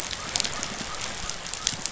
{"label": "biophony", "recorder": "SoundTrap 500"}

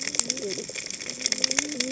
{"label": "biophony, cascading saw", "recorder": "HydroMoth"}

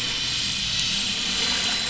{"label": "anthrophony, boat engine", "recorder": "SoundTrap 500"}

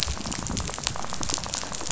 {"label": "biophony, rattle", "recorder": "SoundTrap 500"}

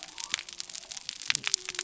{"label": "biophony", "recorder": "SoundTrap 300"}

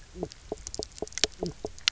{"label": "biophony, knock croak", "recorder": "SoundTrap 300"}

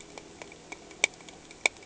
{"label": "anthrophony, boat engine", "recorder": "HydroMoth"}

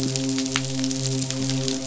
{"label": "biophony, midshipman", "recorder": "SoundTrap 500"}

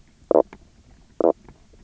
{"label": "biophony, knock croak", "recorder": "SoundTrap 300"}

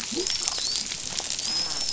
{"label": "biophony, dolphin", "recorder": "SoundTrap 500"}
{"label": "biophony", "recorder": "SoundTrap 500"}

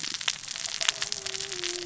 {"label": "biophony, cascading saw", "recorder": "SoundTrap 600 or HydroMoth"}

